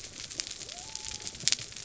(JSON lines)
{"label": "biophony", "recorder": "SoundTrap 300"}